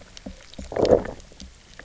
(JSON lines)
{"label": "biophony, low growl", "recorder": "SoundTrap 300"}